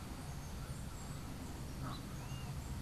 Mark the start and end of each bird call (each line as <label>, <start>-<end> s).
Colombian Chachalaca (Ortalis columbiana), 1.8-2.8 s